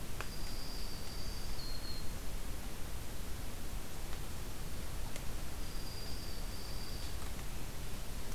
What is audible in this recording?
Dark-eyed Junco, Black-throated Green Warbler